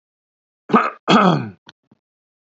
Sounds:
Throat clearing